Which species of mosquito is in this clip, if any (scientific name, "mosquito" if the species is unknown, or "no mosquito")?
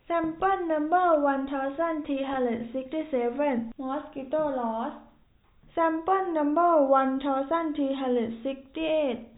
no mosquito